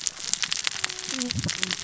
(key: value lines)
label: biophony, cascading saw
recorder: SoundTrap 600 or HydroMoth